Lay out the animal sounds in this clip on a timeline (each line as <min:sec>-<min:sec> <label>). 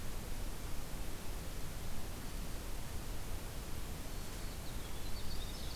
0:04.0-0:05.8 Winter Wren (Troglodytes hiemalis)